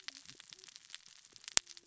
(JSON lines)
{"label": "biophony, cascading saw", "recorder": "SoundTrap 600 or HydroMoth"}